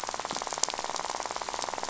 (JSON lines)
{"label": "biophony, rattle", "recorder": "SoundTrap 500"}